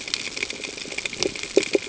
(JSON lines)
{"label": "ambient", "recorder": "HydroMoth"}